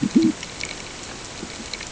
{"label": "ambient", "recorder": "HydroMoth"}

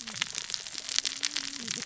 {"label": "biophony, cascading saw", "recorder": "SoundTrap 600 or HydroMoth"}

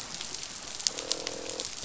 {"label": "biophony, croak", "recorder": "SoundTrap 500"}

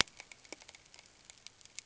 {"label": "ambient", "recorder": "HydroMoth"}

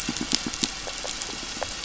{"label": "biophony, pulse", "recorder": "SoundTrap 500"}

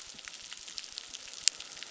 {"label": "biophony, crackle", "recorder": "SoundTrap 600"}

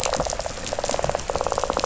{"label": "biophony, rattle", "recorder": "SoundTrap 500"}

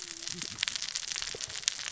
{"label": "biophony, cascading saw", "recorder": "SoundTrap 600 or HydroMoth"}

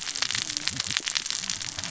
{"label": "biophony, cascading saw", "recorder": "SoundTrap 600 or HydroMoth"}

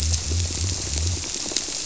{"label": "biophony", "recorder": "SoundTrap 300"}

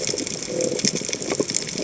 {"label": "biophony", "recorder": "HydroMoth"}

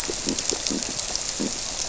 {"label": "biophony", "recorder": "SoundTrap 300"}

